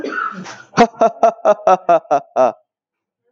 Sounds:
Laughter